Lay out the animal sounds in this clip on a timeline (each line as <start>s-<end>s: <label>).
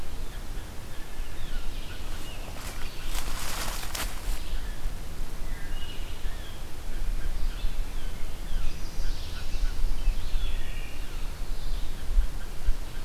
0.0s-2.5s: Mallard (Anas platyrhynchos)
0.0s-13.0s: Red-eyed Vireo (Vireo olivaceus)
6.1s-7.6s: Mallard (Anas platyrhynchos)
8.4s-9.7s: Chestnut-sided Warbler (Setophaga pensylvanica)
8.9s-9.9s: Mallard (Anas platyrhynchos)
11.9s-13.0s: Mallard (Anas platyrhynchos)